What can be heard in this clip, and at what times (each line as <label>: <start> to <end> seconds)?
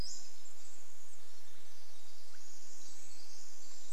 Pacific-slope Flycatcher call: 0 to 2 seconds
Pacific Wren song: 0 to 4 seconds
Swainson's Thrush call: 2 to 4 seconds